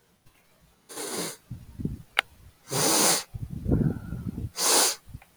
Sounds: Sniff